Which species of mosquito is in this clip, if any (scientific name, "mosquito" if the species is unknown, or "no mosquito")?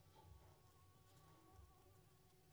Anopheles squamosus